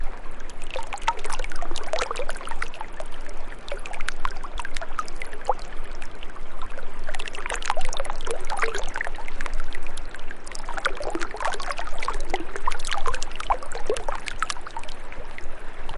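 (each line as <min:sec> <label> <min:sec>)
0:00.0 Water babbles continuously in the stream. 0:16.0
0:00.0 A waterfall murmurs softly in the background. 0:16.0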